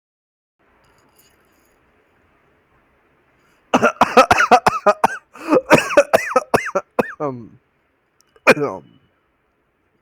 {"expert_labels": [{"quality": "good", "cough_type": "dry", "dyspnea": false, "wheezing": false, "stridor": false, "choking": false, "congestion": false, "nothing": true, "diagnosis": "upper respiratory tract infection", "severity": "mild"}], "age": 31, "gender": "male", "respiratory_condition": false, "fever_muscle_pain": false, "status": "symptomatic"}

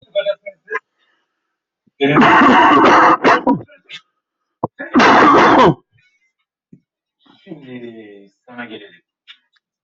{"expert_labels": [{"quality": "poor", "cough_type": "unknown", "dyspnea": false, "wheezing": false, "stridor": false, "choking": false, "congestion": false, "nothing": true, "diagnosis": "obstructive lung disease", "severity": "unknown"}], "age": 50, "gender": "male", "respiratory_condition": false, "fever_muscle_pain": false, "status": "COVID-19"}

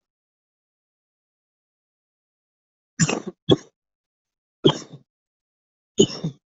{"expert_labels": [{"quality": "poor", "cough_type": "wet", "dyspnea": false, "wheezing": false, "stridor": false, "choking": false, "congestion": false, "nothing": true, "diagnosis": "lower respiratory tract infection", "severity": "mild"}, {"quality": "good", "cough_type": "dry", "dyspnea": false, "wheezing": false, "stridor": false, "choking": false, "congestion": false, "nothing": true, "diagnosis": "upper respiratory tract infection", "severity": "mild"}, {"quality": "good", "cough_type": "wet", "dyspnea": false, "wheezing": false, "stridor": false, "choking": false, "congestion": false, "nothing": true, "diagnosis": "lower respiratory tract infection", "severity": "mild"}, {"quality": "good", "cough_type": "dry", "dyspnea": false, "wheezing": false, "stridor": false, "choking": false, "congestion": false, "nothing": true, "diagnosis": "upper respiratory tract infection", "severity": "mild"}], "age": 25, "gender": "male", "respiratory_condition": false, "fever_muscle_pain": false, "status": "COVID-19"}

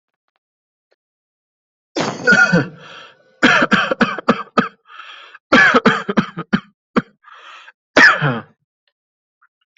{"expert_labels": [{"quality": "good", "cough_type": "dry", "dyspnea": false, "wheezing": false, "stridor": false, "choking": false, "congestion": false, "nothing": false, "diagnosis": "COVID-19", "severity": "mild"}], "age": 30, "gender": "male", "respiratory_condition": true, "fever_muscle_pain": false, "status": "symptomatic"}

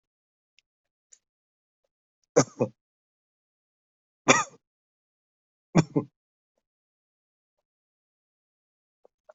{"expert_labels": [{"quality": "ok", "cough_type": "unknown", "dyspnea": false, "wheezing": false, "stridor": false, "choking": false, "congestion": false, "nothing": true, "diagnosis": "COVID-19", "severity": "mild"}, {"quality": "good", "cough_type": "dry", "dyspnea": false, "wheezing": false, "stridor": false, "choking": false, "congestion": false, "nothing": true, "diagnosis": "COVID-19", "severity": "mild"}, {"quality": "good", "cough_type": "dry", "dyspnea": false, "wheezing": false, "stridor": false, "choking": false, "congestion": false, "nothing": true, "diagnosis": "healthy cough", "severity": "pseudocough/healthy cough"}, {"quality": "good", "cough_type": "dry", "dyspnea": false, "wheezing": false, "stridor": false, "choking": false, "congestion": false, "nothing": true, "diagnosis": "healthy cough", "severity": "pseudocough/healthy cough"}]}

